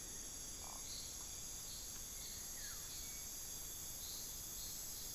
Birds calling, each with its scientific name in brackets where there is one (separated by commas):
Buff-throated Woodcreeper (Xiphorhynchus guttatus), Hauxwell's Thrush (Turdus hauxwelli)